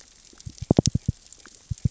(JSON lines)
{"label": "biophony, knock", "recorder": "SoundTrap 600 or HydroMoth"}